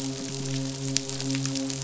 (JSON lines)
{"label": "biophony, midshipman", "recorder": "SoundTrap 500"}